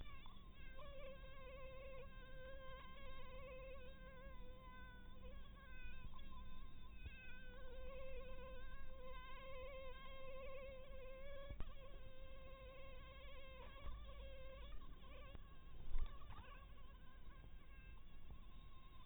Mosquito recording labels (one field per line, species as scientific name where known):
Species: mosquito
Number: one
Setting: cup